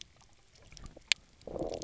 {"label": "biophony, low growl", "recorder": "SoundTrap 300"}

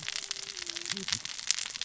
{"label": "biophony, cascading saw", "recorder": "SoundTrap 600 or HydroMoth"}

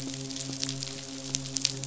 {"label": "biophony, midshipman", "recorder": "SoundTrap 500"}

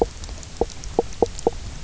{"label": "biophony, knock croak", "recorder": "SoundTrap 300"}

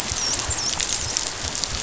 {"label": "biophony, dolphin", "recorder": "SoundTrap 500"}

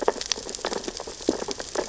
{"label": "biophony, sea urchins (Echinidae)", "recorder": "SoundTrap 600 or HydroMoth"}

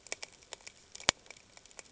{"label": "ambient", "recorder": "HydroMoth"}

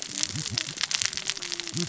{"label": "biophony, cascading saw", "recorder": "SoundTrap 600 or HydroMoth"}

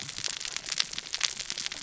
{"label": "biophony, cascading saw", "recorder": "SoundTrap 600 or HydroMoth"}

